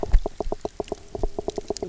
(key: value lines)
label: biophony, knock
recorder: SoundTrap 300